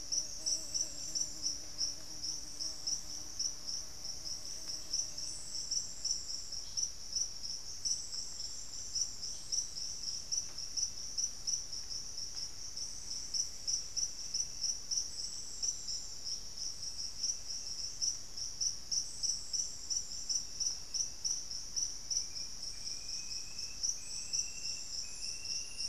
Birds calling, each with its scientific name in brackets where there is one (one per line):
unidentified bird
Black-faced Antthrush (Formicarius analis)